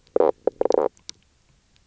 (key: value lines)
label: biophony, knock croak
recorder: SoundTrap 300